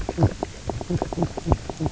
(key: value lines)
label: biophony, knock croak
recorder: SoundTrap 300